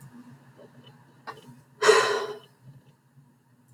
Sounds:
Sigh